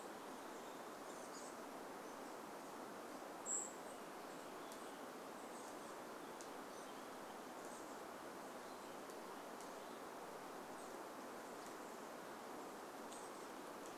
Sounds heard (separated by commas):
Brown Creeper call, Chestnut-backed Chickadee call, unidentified sound